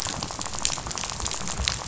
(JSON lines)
{"label": "biophony, rattle", "recorder": "SoundTrap 500"}